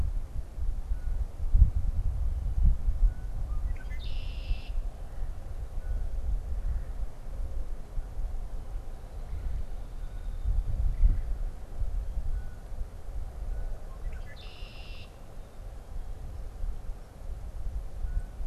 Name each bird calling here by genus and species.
Agelaius phoeniceus, Melanerpes carolinus